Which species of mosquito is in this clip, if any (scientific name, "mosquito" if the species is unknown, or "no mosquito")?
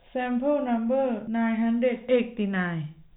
no mosquito